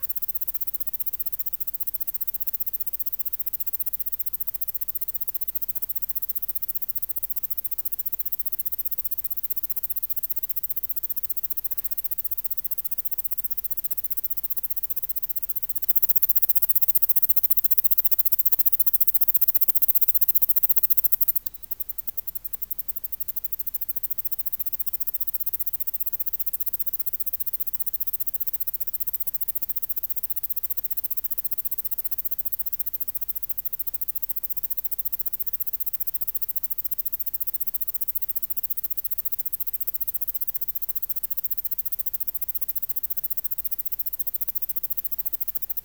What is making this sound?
Anabrus simplex, an orthopteran